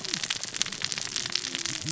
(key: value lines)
label: biophony, cascading saw
recorder: SoundTrap 600 or HydroMoth